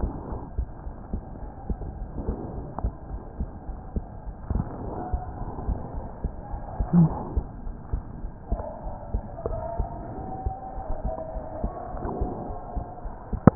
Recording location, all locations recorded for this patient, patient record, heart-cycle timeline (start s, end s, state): pulmonary valve (PV)
aortic valve (AV)+pulmonary valve (PV)+tricuspid valve (TV)+mitral valve (MV)
#Age: Child
#Sex: Male
#Height: 117.0 cm
#Weight: 22.7 kg
#Pregnancy status: False
#Murmur: Absent
#Murmur locations: nan
#Most audible location: nan
#Systolic murmur timing: nan
#Systolic murmur shape: nan
#Systolic murmur grading: nan
#Systolic murmur pitch: nan
#Systolic murmur quality: nan
#Diastolic murmur timing: nan
#Diastolic murmur shape: nan
#Diastolic murmur grading: nan
#Diastolic murmur pitch: nan
#Diastolic murmur quality: nan
#Outcome: Normal
#Campaign: 2015 screening campaign
0.00	5.09	unannotated
5.09	5.20	S2
5.20	5.37	diastole
5.37	5.47	S1
5.47	5.64	systole
5.64	5.76	S2
5.76	5.90	diastole
5.90	6.03	S1
6.03	6.20	systole
6.20	6.29	S2
6.29	6.50	diastole
6.50	6.59	S1
6.59	6.76	systole
6.76	6.87	S2
6.87	7.04	diastole
7.04	7.17	S1
7.17	7.31	systole
7.31	7.43	S2
7.43	7.62	diastole
7.62	7.73	S1
7.73	7.89	systole
7.89	8.02	S2
8.02	8.19	diastole
8.19	8.30	S1
8.30	8.49	systole
8.49	8.59	S2
8.59	8.79	diastole
8.79	8.94	S1
8.94	9.11	systole
9.11	9.22	S2
9.22	9.47	diastole
9.47	9.57	S1
9.57	9.76	systole
9.76	9.86	S2
9.86	10.13	diastole
10.13	10.25	S1
10.25	10.41	systole
10.41	10.54	S2
10.54	10.75	diastole
10.75	10.83	S1
10.83	13.55	unannotated